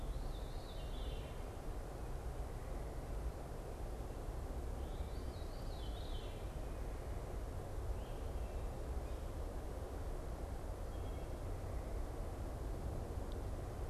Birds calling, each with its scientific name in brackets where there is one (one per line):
Veery (Catharus fuscescens)